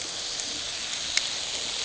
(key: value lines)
label: anthrophony, boat engine
recorder: HydroMoth